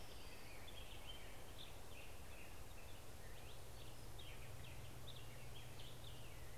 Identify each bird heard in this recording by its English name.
Orange-crowned Warbler, Black-headed Grosbeak